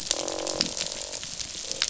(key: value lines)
label: biophony, croak
recorder: SoundTrap 500